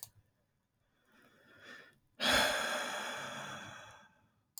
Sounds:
Sigh